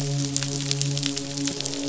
{"label": "biophony, midshipman", "recorder": "SoundTrap 500"}
{"label": "biophony, croak", "recorder": "SoundTrap 500"}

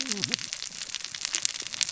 {"label": "biophony, cascading saw", "recorder": "SoundTrap 600 or HydroMoth"}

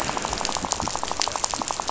{"label": "biophony, rattle", "recorder": "SoundTrap 500"}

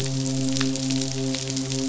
{"label": "biophony, midshipman", "recorder": "SoundTrap 500"}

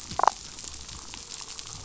{"label": "biophony", "recorder": "SoundTrap 500"}
{"label": "biophony, damselfish", "recorder": "SoundTrap 500"}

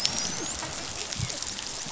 {"label": "biophony, dolphin", "recorder": "SoundTrap 500"}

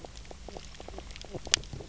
{"label": "biophony, knock croak", "recorder": "SoundTrap 300"}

